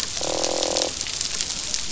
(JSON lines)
{"label": "biophony, croak", "recorder": "SoundTrap 500"}